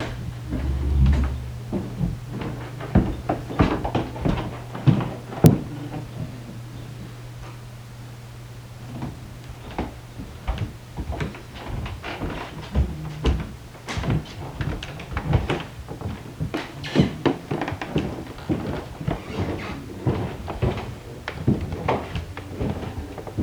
Was the floor creaking as people moved about?
yes